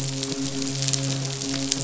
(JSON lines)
{"label": "biophony, midshipman", "recorder": "SoundTrap 500"}